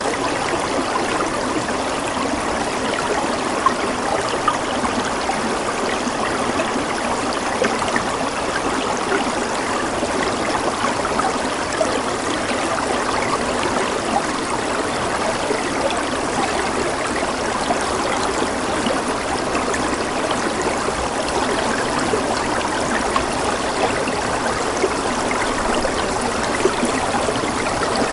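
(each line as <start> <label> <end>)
0.0 The sound of a river or small stream flowing. 28.1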